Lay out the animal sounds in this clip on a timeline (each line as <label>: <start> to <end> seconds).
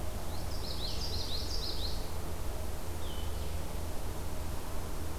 Red-eyed Vireo (Vireo olivaceus): 0.0 to 5.2 seconds
Common Yellowthroat (Geothlypis trichas): 0.1 to 2.1 seconds